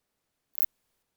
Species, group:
Phaneroptera nana
Orthoptera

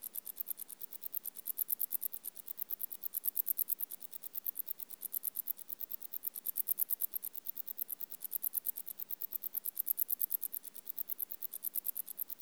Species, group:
Decticus verrucivorus
Orthoptera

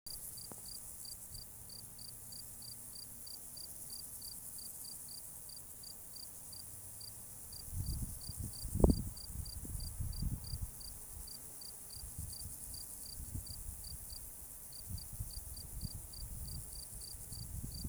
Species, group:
Gryllus campestris
Orthoptera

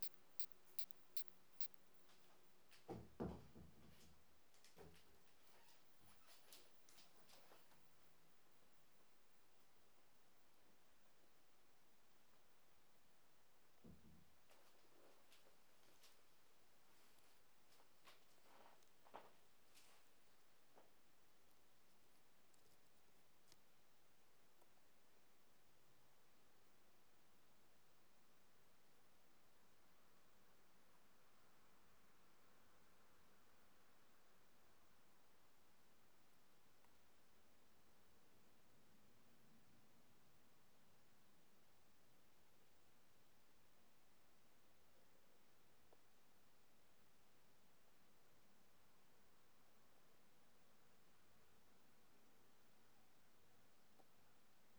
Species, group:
Isophya camptoxypha
Orthoptera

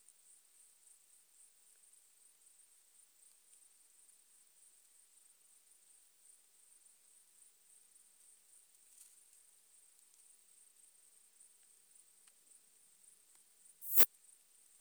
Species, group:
Poecilimon affinis
Orthoptera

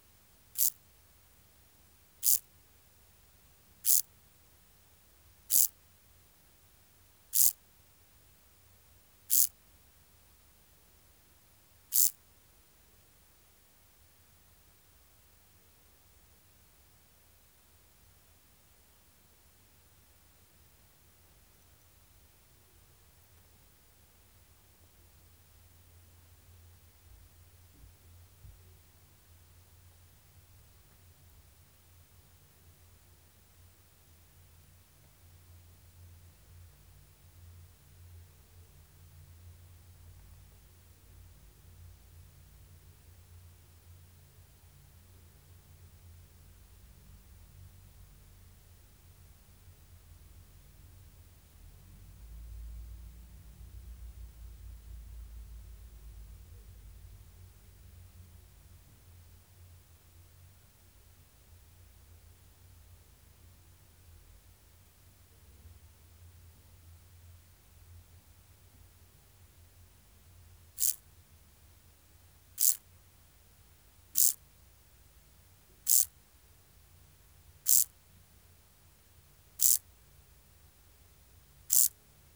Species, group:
Chorthippus brunneus
Orthoptera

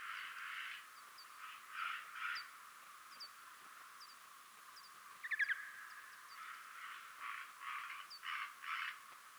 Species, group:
Pholidoptera griseoaptera
Orthoptera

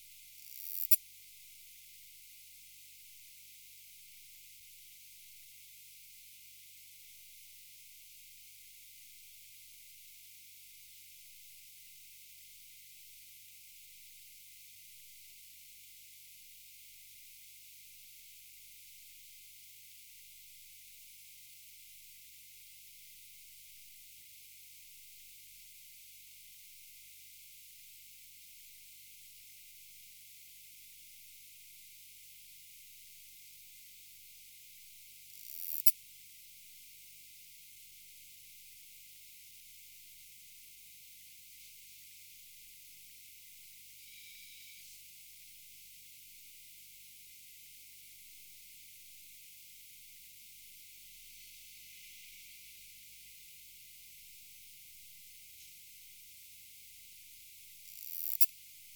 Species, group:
Poecilimon nobilis
Orthoptera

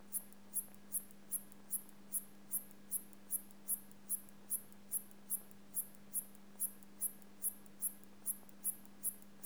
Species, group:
Hexacentrus unicolor
Orthoptera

